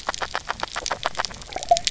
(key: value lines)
label: biophony, grazing
recorder: SoundTrap 300